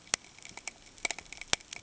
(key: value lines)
label: ambient
recorder: HydroMoth